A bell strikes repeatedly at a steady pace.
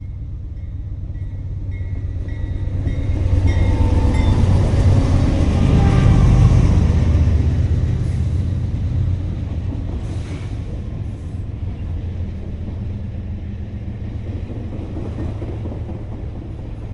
0:00.0 0:04.2

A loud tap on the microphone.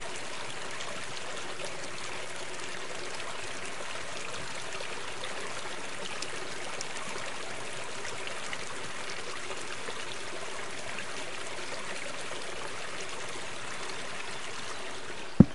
0:15.3 0:15.5

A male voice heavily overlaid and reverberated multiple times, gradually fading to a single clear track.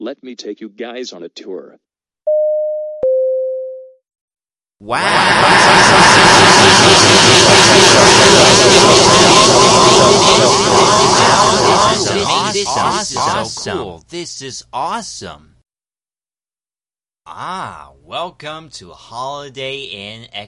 0:04.8 0:15.5

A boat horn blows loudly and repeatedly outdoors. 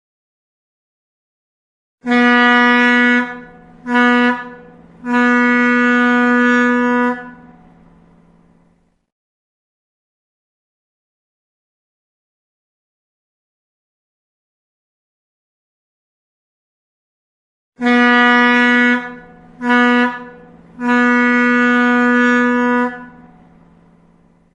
0:02.0 0:08.0, 0:17.7 0:23.0

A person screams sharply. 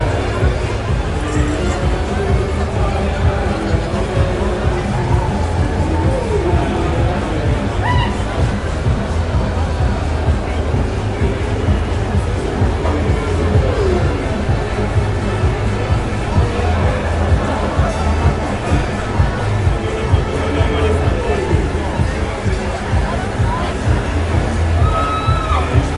0:24.6 0:26.0

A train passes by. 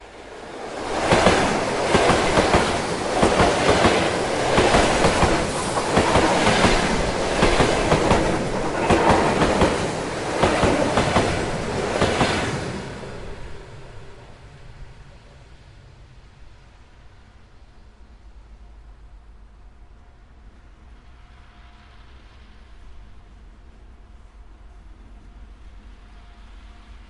0:00.3 0:13.9

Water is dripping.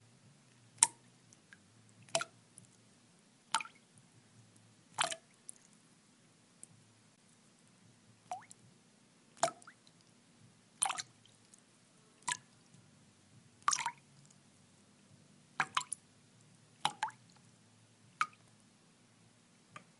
0:00.8 0:01.0, 0:02.1 0:02.3, 0:03.5 0:03.7, 0:04.9 0:05.6, 0:06.6 0:06.7, 0:08.3 0:08.5, 0:09.4 0:09.5, 0:10.7 0:11.1, 0:12.2 0:12.4, 0:13.6 0:13.9, 0:15.5 0:16.0, 0:16.8 0:17.1, 0:18.2 0:18.3

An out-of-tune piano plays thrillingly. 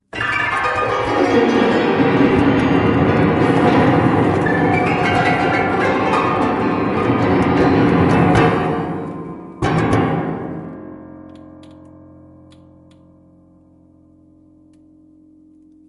0:00.0 0:10.9

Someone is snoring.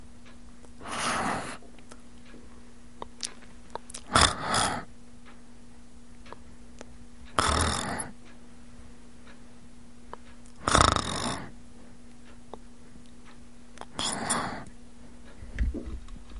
0:02.9 0:05.0, 0:07.1 0:08.3, 0:10.6 0:11.5, 0:13.8 0:14.7

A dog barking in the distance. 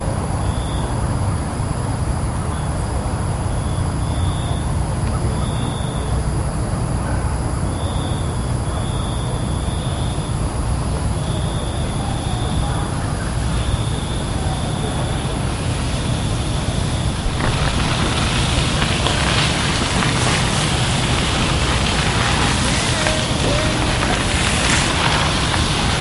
0:05.1 0:05.7, 0:06.6 0:07.7, 0:08.5 0:09.3

